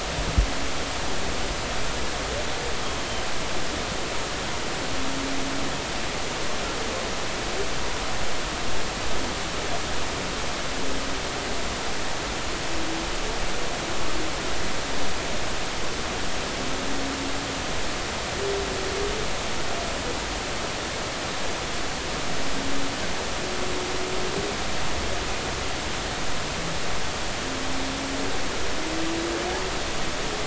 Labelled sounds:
3.0	3.3	humpback whale, 3.0 to 3.2 kHz

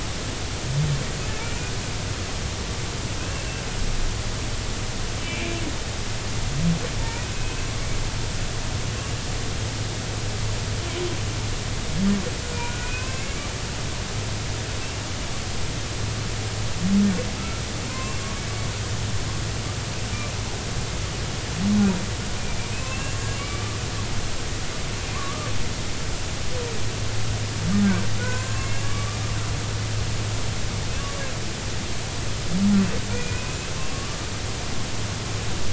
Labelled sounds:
5.2	5.6	humpback whale, 2.2 to 2.7 kHz
7.0	7.3	humpback whale, 0.86 to 2.6 kHz
12.7	13.3	humpback whale, 0.99 to 2.7 kHz
17.4	18.2	humpback whale, 0.96 to 1.4 kHz
22.9	23.8	humpback whale, 1.1 to 7.3 kHz
25.1	25.5	humpback whale, 0.99 to 1.3 kHz
28.2	29.2	humpback whale, 0.96 to 7.2 kHz
33.1	34.2	humpback whale, 1.1 to 2.6 kHz

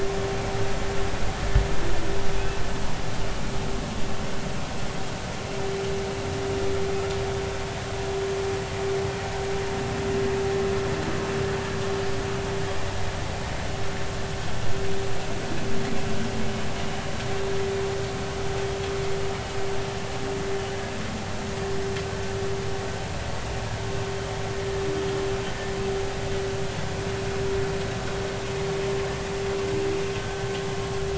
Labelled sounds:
2.4	2.6	humpback whale, 2.4 to 2.7 kHz

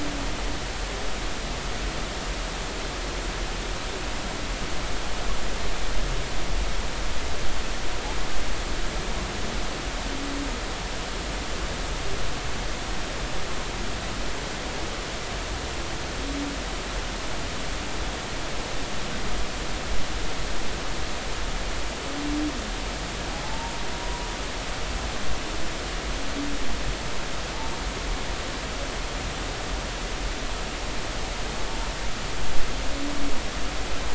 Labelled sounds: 23.4	23.7	humpback whale, 0.80 to 0.96 kHz

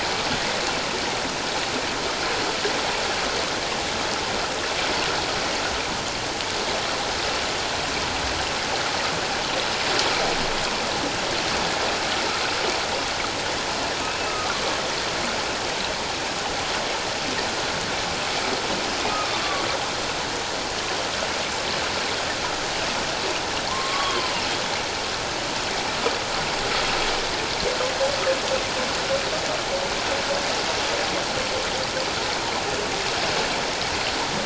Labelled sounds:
14.3	14.6	humpback whale, 1.1 to 1.3 kHz
19.1	19.4	humpback whale, 1.1 to 1.3 kHz
23.7	24.3	humpback whale, 0.78 to 3.4 kHz

